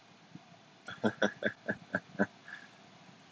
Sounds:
Laughter